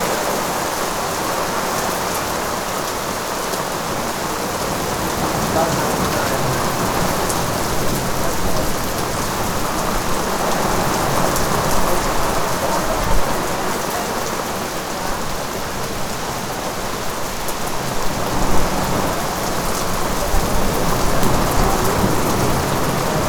Are there humans stuck in this weather?
yes